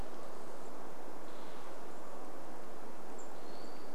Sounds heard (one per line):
Hermit Thrush call
unidentified bird chip note
tree creak